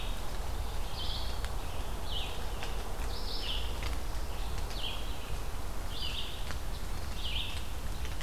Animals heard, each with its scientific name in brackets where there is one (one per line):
Red-eyed Vireo (Vireo olivaceus)